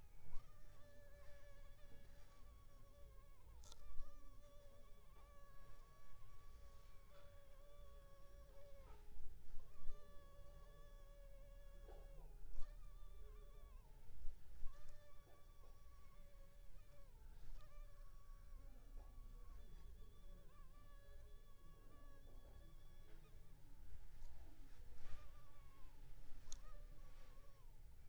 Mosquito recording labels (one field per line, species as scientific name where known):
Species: Culex pipiens complex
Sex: female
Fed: unfed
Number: one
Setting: cup